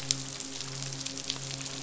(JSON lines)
{"label": "biophony, midshipman", "recorder": "SoundTrap 500"}